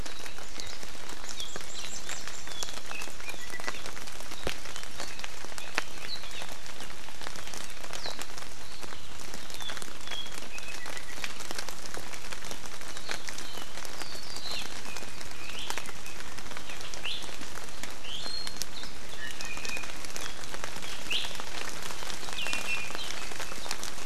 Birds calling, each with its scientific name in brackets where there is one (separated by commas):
Apapane (Himatione sanguinea), Warbling White-eye (Zosterops japonicus), Iiwi (Drepanis coccinea)